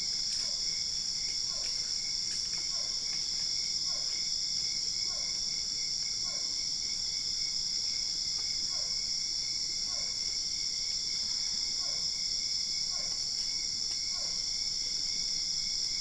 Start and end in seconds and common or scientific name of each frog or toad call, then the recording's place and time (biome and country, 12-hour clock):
0.0	14.7	Physalaemus cuvieri
Cerrado, Brazil, 2:15am